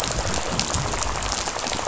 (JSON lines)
{"label": "biophony, rattle", "recorder": "SoundTrap 500"}